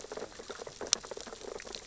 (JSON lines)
{"label": "biophony, sea urchins (Echinidae)", "recorder": "SoundTrap 600 or HydroMoth"}